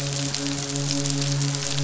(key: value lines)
label: biophony, midshipman
recorder: SoundTrap 500